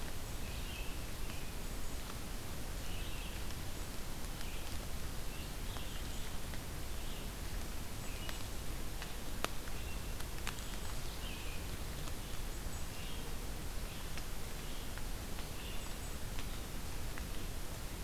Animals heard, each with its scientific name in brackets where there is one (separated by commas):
Red-eyed Vireo (Vireo olivaceus), American Robin (Turdus migratorius)